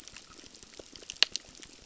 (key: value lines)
label: biophony, crackle
recorder: SoundTrap 600